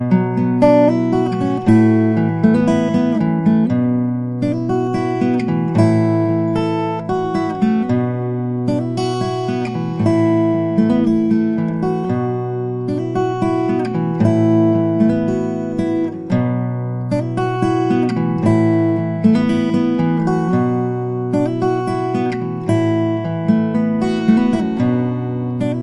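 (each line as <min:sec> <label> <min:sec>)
0:00.0 An acoustic guitar is played. 0:25.8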